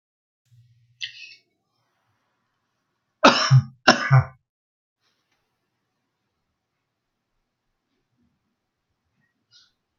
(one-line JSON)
{"expert_labels": [{"quality": "good", "cough_type": "dry", "dyspnea": false, "wheezing": false, "stridor": false, "choking": false, "congestion": false, "nothing": true, "diagnosis": "healthy cough", "severity": "pseudocough/healthy cough"}], "age": 57, "gender": "male", "respiratory_condition": true, "fever_muscle_pain": false, "status": "COVID-19"}